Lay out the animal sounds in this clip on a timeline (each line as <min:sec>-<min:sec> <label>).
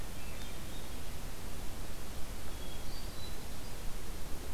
0:00.0-0:01.0 Hermit Thrush (Catharus guttatus)
0:02.4-0:03.8 Hermit Thrush (Catharus guttatus)